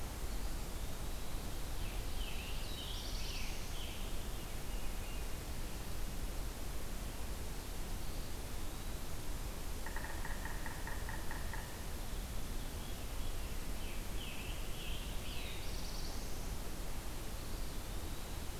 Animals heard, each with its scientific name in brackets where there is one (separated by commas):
Eastern Wood-Pewee (Contopus virens), Scarlet Tanager (Piranga olivacea), Veery (Catharus fuscescens), Black-throated Blue Warbler (Setophaga caerulescens), Yellow-bellied Sapsucker (Sphyrapicus varius)